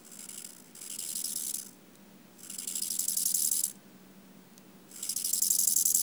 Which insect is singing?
Chorthippus eisentrauti, an orthopteran